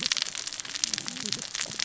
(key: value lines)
label: biophony, cascading saw
recorder: SoundTrap 600 or HydroMoth